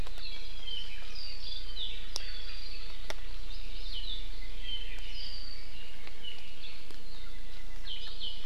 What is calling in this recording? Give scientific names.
Himatione sanguinea